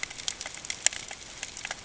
{"label": "ambient", "recorder": "HydroMoth"}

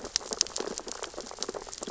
{"label": "biophony, sea urchins (Echinidae)", "recorder": "SoundTrap 600 or HydroMoth"}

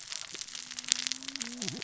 {"label": "biophony, cascading saw", "recorder": "SoundTrap 600 or HydroMoth"}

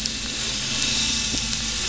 {"label": "anthrophony, boat engine", "recorder": "SoundTrap 500"}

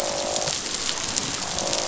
{"label": "biophony, croak", "recorder": "SoundTrap 500"}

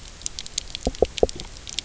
{"label": "biophony, knock", "recorder": "SoundTrap 300"}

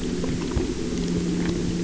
{"label": "anthrophony, boat engine", "recorder": "SoundTrap 300"}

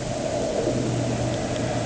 {"label": "anthrophony, boat engine", "recorder": "HydroMoth"}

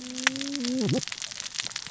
{"label": "biophony, cascading saw", "recorder": "SoundTrap 600 or HydroMoth"}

